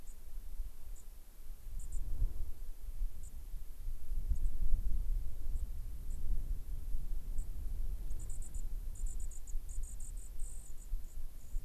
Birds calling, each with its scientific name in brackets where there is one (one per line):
White-crowned Sparrow (Zonotrichia leucophrys)